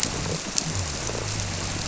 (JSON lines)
{"label": "biophony", "recorder": "SoundTrap 300"}